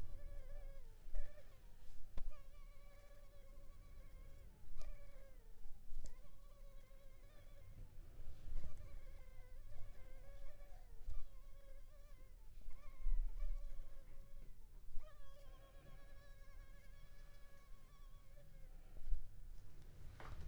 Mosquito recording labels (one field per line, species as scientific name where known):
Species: Culex pipiens complex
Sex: female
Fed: unfed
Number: one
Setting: cup